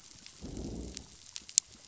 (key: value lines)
label: biophony, growl
recorder: SoundTrap 500